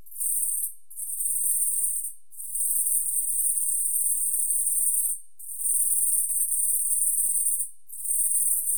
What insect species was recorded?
Calliphona koenigi